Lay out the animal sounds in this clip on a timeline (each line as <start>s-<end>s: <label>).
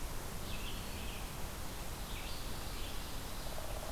0.0s-3.9s: Red-eyed Vireo (Vireo olivaceus)